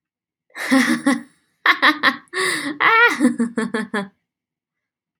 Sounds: Laughter